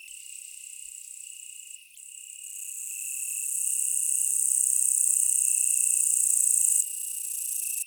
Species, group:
Tettigonia caudata, Orthoptera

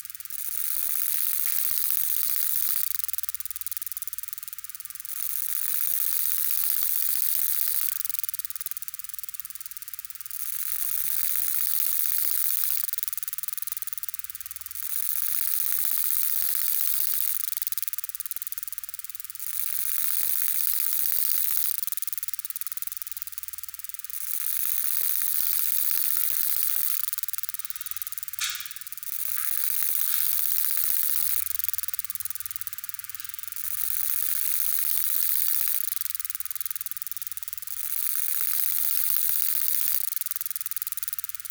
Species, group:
Conocephalus dorsalis, Orthoptera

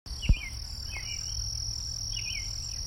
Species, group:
Anaxipha vernalis, Orthoptera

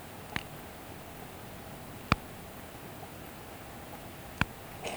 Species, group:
Poecilimon hamatus, Orthoptera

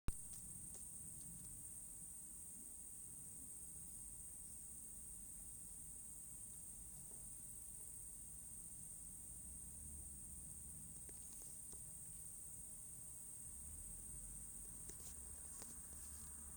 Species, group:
Tettigonia viridissima, Orthoptera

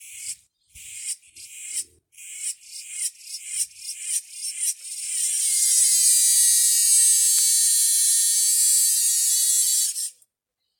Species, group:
Acanthoventris drewseni, Cicadidae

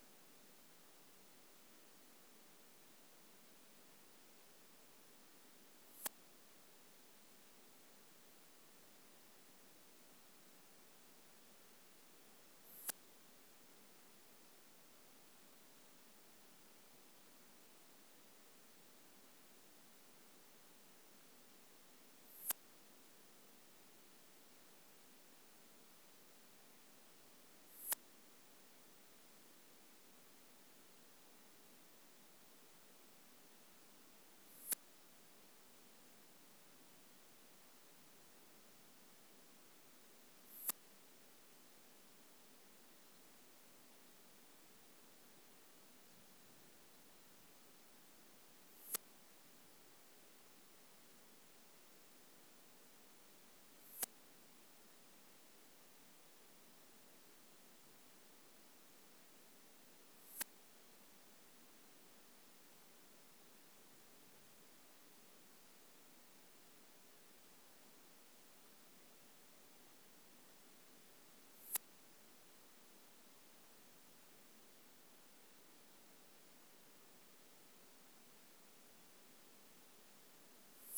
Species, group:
Poecilimon pseudornatus, Orthoptera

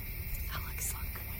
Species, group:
Neoconocephalus retusus, Orthoptera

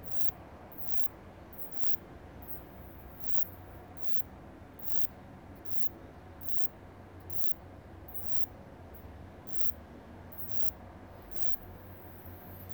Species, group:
Poecilimon luschani, Orthoptera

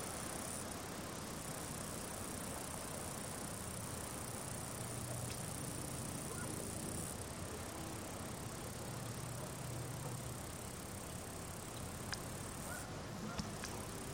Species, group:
Tettigettalna josei, Cicadidae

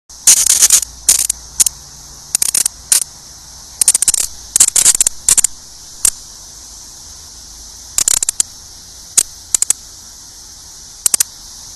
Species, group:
Magicicada cassini, Cicadidae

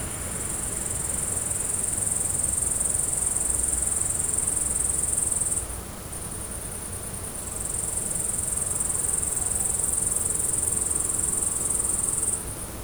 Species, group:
Tettigonia cantans, Orthoptera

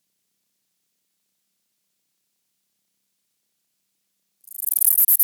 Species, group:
Callicrania ramburii, Orthoptera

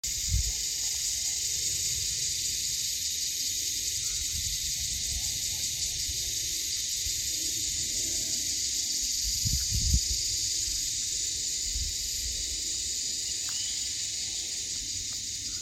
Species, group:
Psaltoda claripennis, Cicadidae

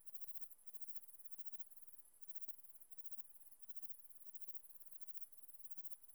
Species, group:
Tessellana tessellata, Orthoptera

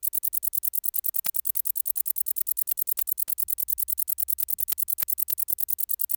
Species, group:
Decticus verrucivorus, Orthoptera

